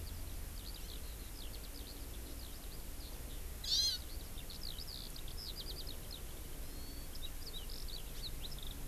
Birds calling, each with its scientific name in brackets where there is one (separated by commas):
Hawaii Amakihi (Chlorodrepanis virens), Eurasian Skylark (Alauda arvensis)